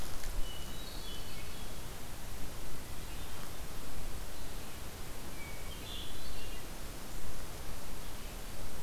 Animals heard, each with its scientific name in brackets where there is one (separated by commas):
Hermit Thrush (Catharus guttatus)